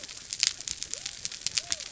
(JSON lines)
{"label": "biophony", "recorder": "SoundTrap 300"}